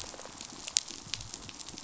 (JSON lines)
{"label": "biophony, damselfish", "recorder": "SoundTrap 500"}